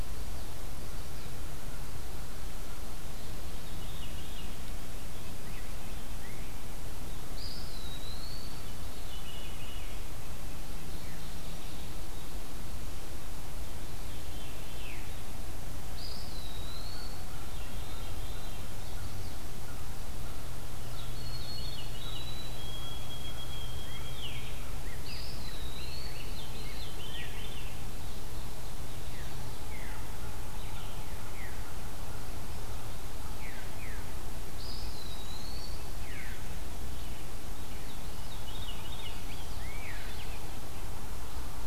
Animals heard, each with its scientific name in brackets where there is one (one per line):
Veery (Catharus fuscescens)
Mourning Warbler (Geothlypis philadelphia)
Eastern Wood-Pewee (Contopus virens)
White-throated Sparrow (Zonotrichia albicollis)